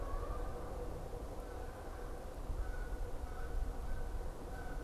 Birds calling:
Canada Goose (Branta canadensis)

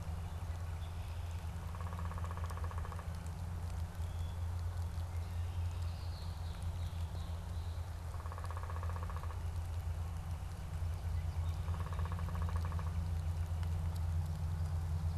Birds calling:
Downy Woodpecker (Dryobates pubescens), Red-winged Blackbird (Agelaius phoeniceus), Northern Flicker (Colaptes auratus)

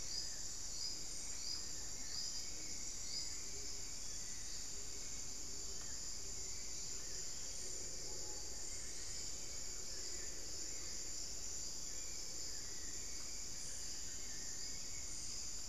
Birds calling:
Gilded Barbet (Capito auratus), Screaming Piha (Lipaugus vociferans)

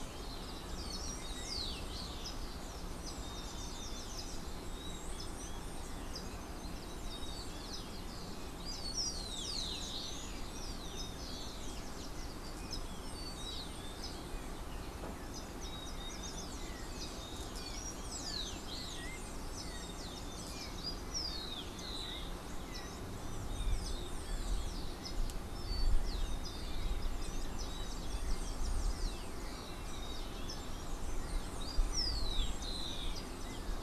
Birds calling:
Golden-faced Tyrannulet (Zimmerius chrysops), Rufous-collared Sparrow (Zonotrichia capensis)

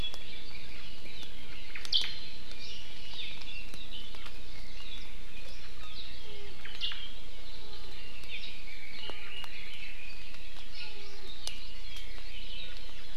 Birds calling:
Omao (Myadestes obscurus), Red-billed Leiothrix (Leiothrix lutea)

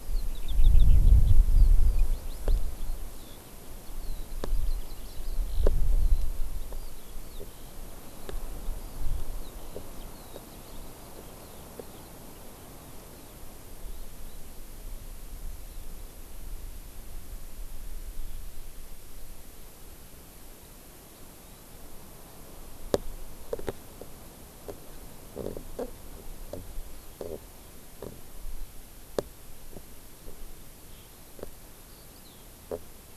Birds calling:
Eurasian Skylark (Alauda arvensis)

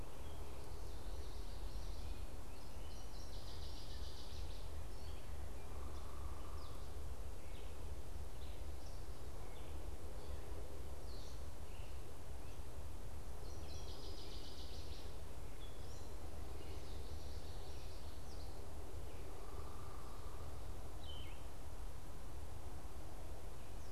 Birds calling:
unidentified bird, Northern Waterthrush (Parkesia noveboracensis), Gray Catbird (Dumetella carolinensis), Yellow-throated Vireo (Vireo flavifrons)

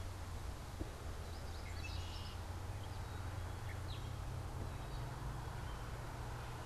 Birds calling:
Gray Catbird (Dumetella carolinensis), Red-winged Blackbird (Agelaius phoeniceus), Yellow Warbler (Setophaga petechia)

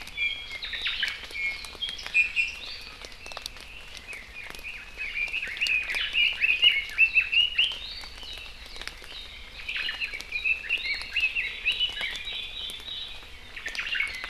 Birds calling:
Omao (Myadestes obscurus), Red-billed Leiothrix (Leiothrix lutea), Iiwi (Drepanis coccinea)

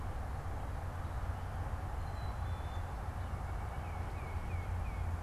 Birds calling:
Tufted Titmouse (Baeolophus bicolor), Black-capped Chickadee (Poecile atricapillus), White-breasted Nuthatch (Sitta carolinensis)

